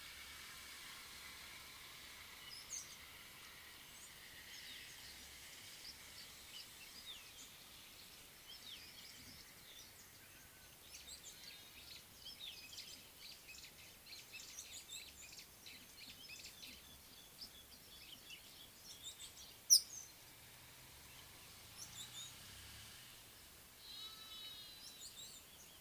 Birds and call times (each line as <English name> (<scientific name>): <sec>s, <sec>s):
White-browed Sparrow-Weaver (Plocepasser mahali): 14.5s
Red-headed Weaver (Anaplectes rubriceps): 19.8s